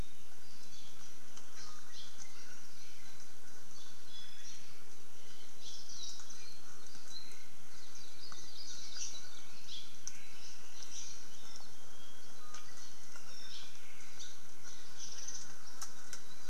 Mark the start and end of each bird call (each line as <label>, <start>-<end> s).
Hawaii Creeper (Loxops mana), 1.9-2.2 s
Iiwi (Drepanis coccinea), 4.0-4.5 s
Hawaii Creeper (Loxops mana), 5.6-5.9 s
Apapane (Himatione sanguinea), 7.1-7.6 s
Hawaii Akepa (Loxops coccineus), 7.6-9.5 s
Hawaii Creeper (Loxops mana), 9.6-10.0 s
Hawaii Creeper (Loxops mana), 13.5-13.7 s
Hawaii Creeper (Loxops mana), 14.1-14.4 s